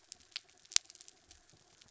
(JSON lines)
{"label": "anthrophony, mechanical", "recorder": "SoundTrap 300"}